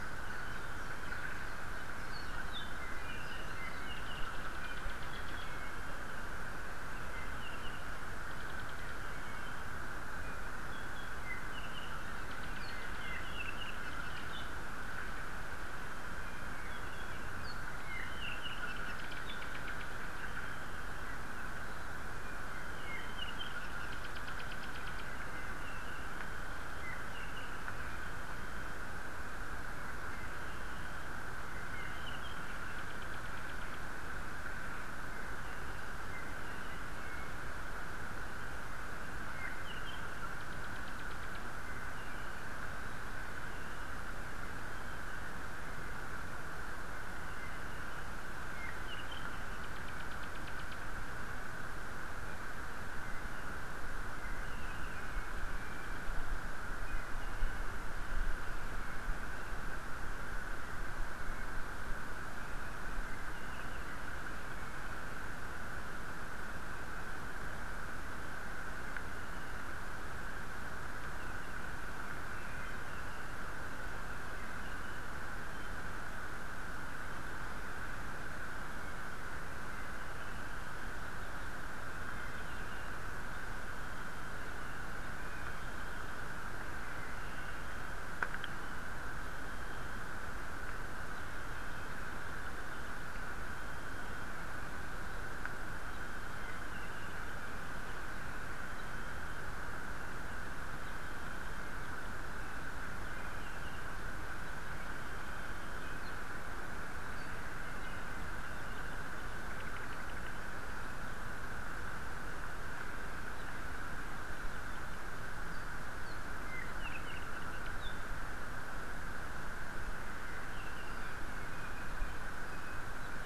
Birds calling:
Apapane (Himatione sanguinea), Iiwi (Drepanis coccinea)

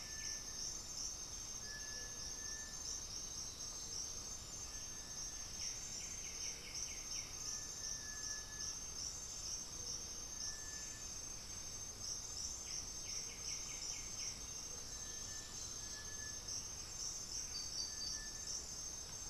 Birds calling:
Black-throated Antbird (Myrmophylax atrothorax), Undulated Tinamou (Crypturellus undulatus), White-winged Becard (Pachyramphus polychopterus), Cinereous Tinamou (Crypturellus cinereus), unidentified bird

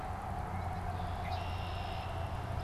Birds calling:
American Goldfinch (Spinus tristis), Red-winged Blackbird (Agelaius phoeniceus)

